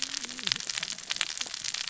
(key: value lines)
label: biophony, cascading saw
recorder: SoundTrap 600 or HydroMoth